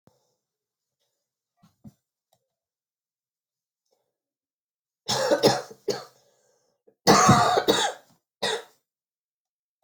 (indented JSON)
{
  "expert_labels": [
    {
      "quality": "good",
      "cough_type": "wet",
      "dyspnea": false,
      "wheezing": false,
      "stridor": false,
      "choking": false,
      "congestion": false,
      "nothing": true,
      "diagnosis": "lower respiratory tract infection",
      "severity": "mild"
    }
  ],
  "age": 46,
  "gender": "female",
  "respiratory_condition": true,
  "fever_muscle_pain": false,
  "status": "symptomatic"
}